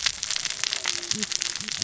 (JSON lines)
{"label": "biophony, cascading saw", "recorder": "SoundTrap 600 or HydroMoth"}